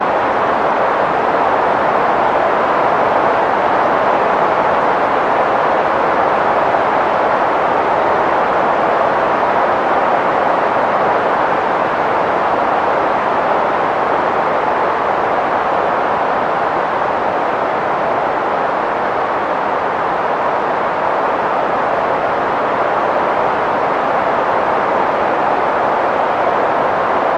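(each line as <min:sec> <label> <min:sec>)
0:00.0 Wind is blowing. 0:27.4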